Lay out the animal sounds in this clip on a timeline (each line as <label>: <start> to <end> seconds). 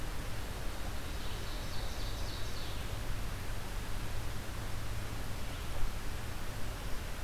Ovenbird (Seiurus aurocapilla): 0.8 to 3.4 seconds